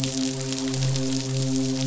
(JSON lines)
{"label": "biophony, midshipman", "recorder": "SoundTrap 500"}